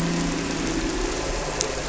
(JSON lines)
{"label": "anthrophony, boat engine", "recorder": "SoundTrap 300"}